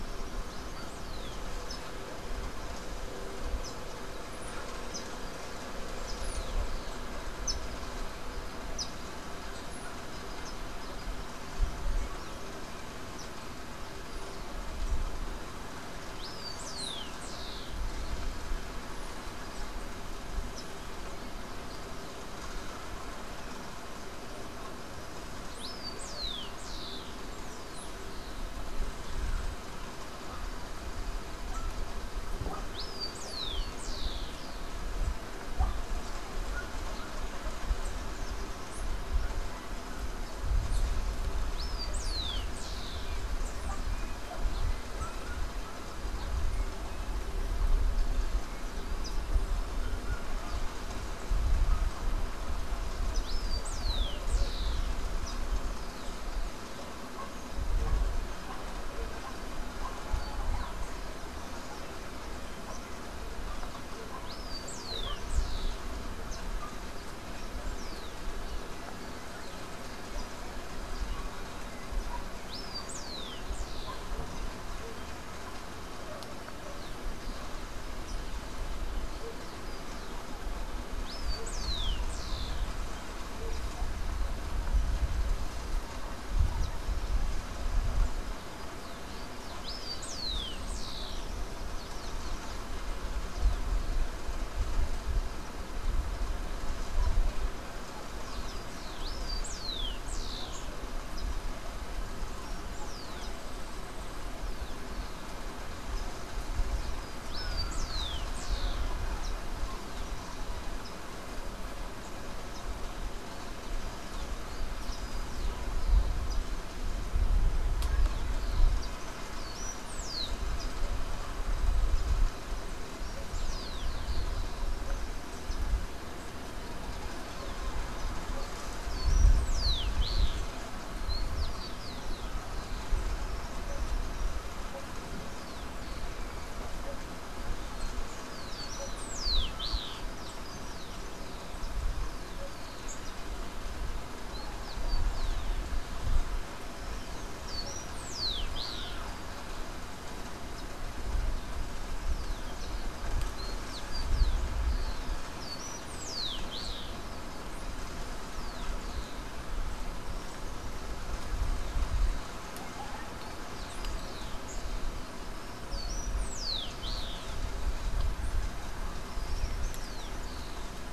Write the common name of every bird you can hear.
Rufous-collared Sparrow, unidentified bird, Yellow-faced Grassquit